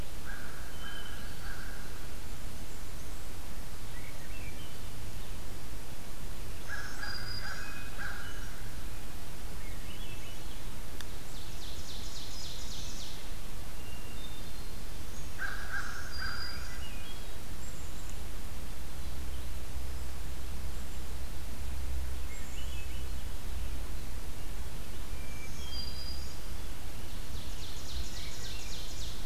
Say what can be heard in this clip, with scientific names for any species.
Corvus brachyrhynchos, Catharus guttatus, Setophaga fusca, Catharus ustulatus, Setophaga virens, Seiurus aurocapilla, Poecile atricapillus